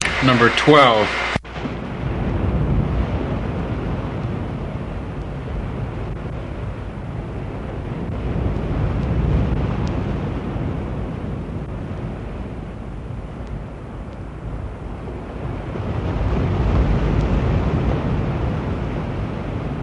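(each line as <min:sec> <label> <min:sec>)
0:00.0 A male voice is speaking. 0:01.4
0:01.4 Loud and clear thunderstorm noises repeating in a pattern. 0:19.8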